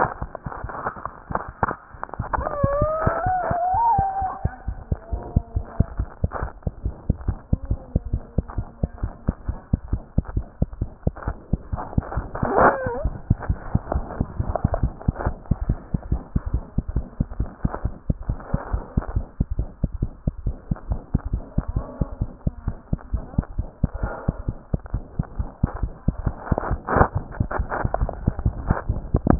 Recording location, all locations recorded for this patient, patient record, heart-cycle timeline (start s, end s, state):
mitral valve (MV)
aortic valve (AV)+mitral valve (MV)
#Age: Child
#Sex: Female
#Height: 74.0 cm
#Weight: 8.5 kg
#Pregnancy status: False
#Murmur: Present
#Murmur locations: mitral valve (MV)
#Most audible location: mitral valve (MV)
#Systolic murmur timing: Holosystolic
#Systolic murmur shape: Plateau
#Systolic murmur grading: I/VI
#Systolic murmur pitch: Low
#Systolic murmur quality: Blowing
#Diastolic murmur timing: nan
#Diastolic murmur shape: nan
#Diastolic murmur grading: nan
#Diastolic murmur pitch: nan
#Diastolic murmur quality: nan
#Outcome: Abnormal
#Campaign: 2015 screening campaign
0.00	5.11	unannotated
5.11	5.22	S2
5.22	5.35	diastole
5.35	5.44	S1
5.44	5.54	systole
5.54	5.66	S2
5.66	5.78	diastole
5.78	5.86	S1
5.86	5.98	systole
5.98	6.08	S2
6.08	6.22	diastole
6.22	6.32	S1
6.32	6.42	systole
6.42	6.48	S2
6.48	6.63	diastole
6.63	6.70	S1
6.70	6.84	systole
6.84	6.94	S2
6.94	7.08	diastole
7.08	7.18	S1
7.18	7.27	systole
7.27	7.36	S2
7.36	7.50	diastole
7.50	7.60	S1
7.60	7.70	systole
7.70	7.80	S2
7.80	7.94	diastole
7.94	8.04	S1
8.04	8.12	systole
8.12	8.20	S2
8.20	8.36	diastole
8.36	8.46	S1
8.46	8.58	systole
8.58	8.66	S2
8.66	8.82	diastole
8.82	8.90	S1
8.90	9.01	systole
9.01	9.12	S2
9.12	9.27	diastole
9.27	9.36	S1
9.36	9.48	systole
9.48	9.60	S2
9.60	9.72	diastole
9.72	9.80	S1
9.80	9.92	systole
9.92	10.02	S2
10.02	10.15	diastole
10.15	10.26	S1
10.26	10.36	systole
10.36	10.45	S2
10.45	10.60	diastole
10.60	10.70	S1
10.70	10.80	systole
10.80	10.88	S2
10.88	11.05	diastole
11.05	11.14	S1
11.14	11.26	systole
11.26	11.36	S2
11.36	11.50	diastole
11.50	11.60	S1
11.60	11.72	systole
11.72	29.39	unannotated